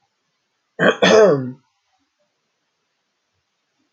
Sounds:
Throat clearing